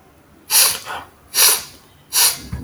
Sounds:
Sniff